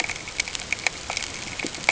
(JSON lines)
{"label": "ambient", "recorder": "HydroMoth"}